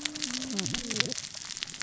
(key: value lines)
label: biophony, cascading saw
recorder: SoundTrap 600 or HydroMoth